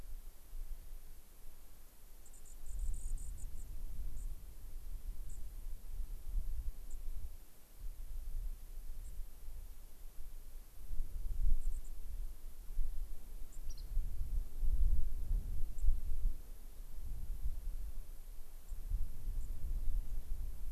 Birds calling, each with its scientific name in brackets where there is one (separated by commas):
unidentified bird, White-crowned Sparrow (Zonotrichia leucophrys)